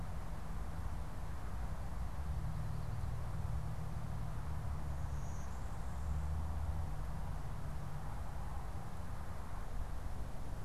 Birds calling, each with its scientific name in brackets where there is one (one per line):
Blue-winged Warbler (Vermivora cyanoptera)